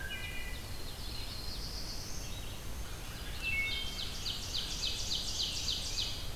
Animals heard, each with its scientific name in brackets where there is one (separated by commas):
Ovenbird (Seiurus aurocapilla), Red-eyed Vireo (Vireo olivaceus), Wood Thrush (Hylocichla mustelina), Black-throated Blue Warbler (Setophaga caerulescens)